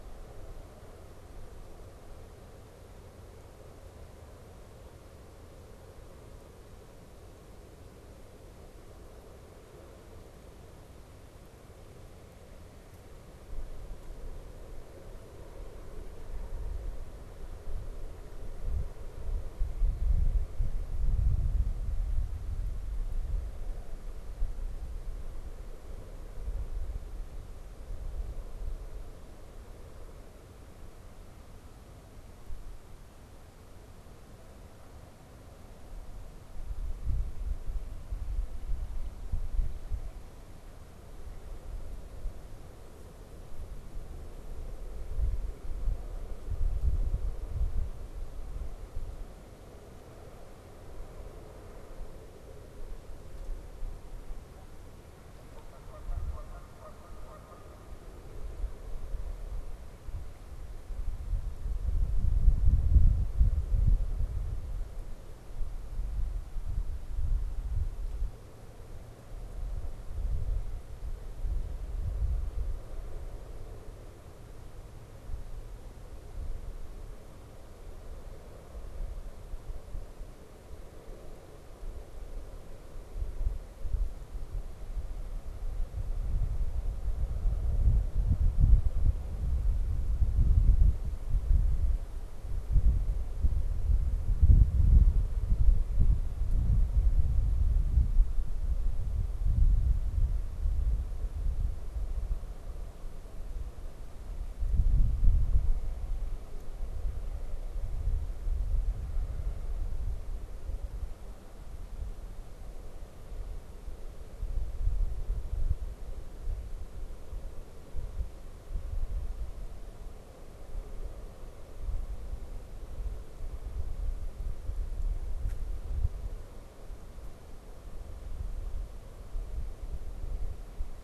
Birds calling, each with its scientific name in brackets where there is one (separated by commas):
Canada Goose (Branta canadensis)